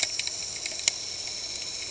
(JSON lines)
{"label": "anthrophony, boat engine", "recorder": "HydroMoth"}